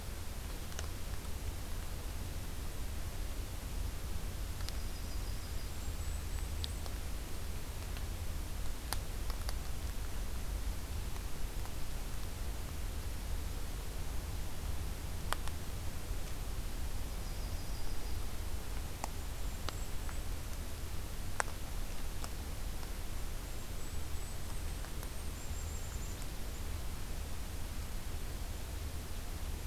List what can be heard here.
Yellow-rumped Warbler, Golden-crowned Kinglet